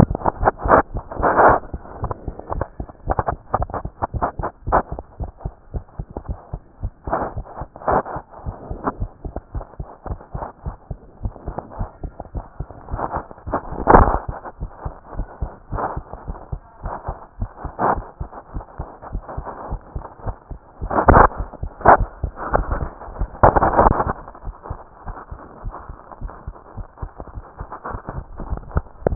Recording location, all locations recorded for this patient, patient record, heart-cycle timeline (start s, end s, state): tricuspid valve (TV)
aortic valve (AV)+pulmonary valve (PV)+tricuspid valve (TV)+mitral valve (MV)
#Age: Child
#Sex: Female
#Height: 121.0 cm
#Weight: 21.4 kg
#Pregnancy status: False
#Murmur: Absent
#Murmur locations: nan
#Most audible location: nan
#Systolic murmur timing: nan
#Systolic murmur shape: nan
#Systolic murmur grading: nan
#Systolic murmur pitch: nan
#Systolic murmur quality: nan
#Diastolic murmur timing: nan
#Diastolic murmur shape: nan
#Diastolic murmur grading: nan
#Diastolic murmur pitch: nan
#Diastolic murmur quality: nan
#Outcome: Normal
#Campaign: 2014 screening campaign
0.00	8.14	unannotated
8.14	8.24	S2
8.24	8.44	diastole
8.44	8.56	S1
8.56	8.70	systole
8.70	8.78	S2
8.78	8.98	diastole
8.98	9.10	S1
9.10	9.24	systole
9.24	9.34	S2
9.34	9.54	diastole
9.54	9.64	S1
9.64	9.78	systole
9.78	9.88	S2
9.88	10.08	diastole
10.08	10.18	S1
10.18	10.34	systole
10.34	10.44	S2
10.44	10.64	diastole
10.64	10.76	S1
10.76	10.90	systole
10.90	10.98	S2
10.98	11.22	diastole
11.22	11.34	S1
11.34	11.46	systole
11.46	11.56	S2
11.56	11.78	diastole
11.78	11.88	S1
11.88	12.02	systole
12.02	12.12	S2
12.12	12.34	diastole
12.34	12.44	S1
12.44	12.58	systole
12.58	12.68	S2
12.68	12.81	diastole
12.81	29.15	unannotated